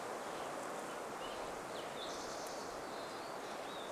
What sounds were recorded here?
Steller's Jay call, unidentified sound, Olive-sided Flycatcher song, Spotted Towhee song